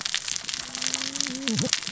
{"label": "biophony, cascading saw", "recorder": "SoundTrap 600 or HydroMoth"}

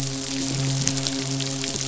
{"label": "biophony, midshipman", "recorder": "SoundTrap 500"}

